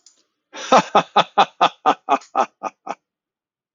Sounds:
Laughter